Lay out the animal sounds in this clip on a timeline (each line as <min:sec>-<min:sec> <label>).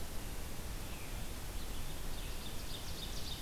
0:00.0-0:03.4 Red-eyed Vireo (Vireo olivaceus)
0:01.9-0:03.4 Ovenbird (Seiurus aurocapilla)